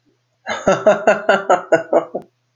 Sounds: Laughter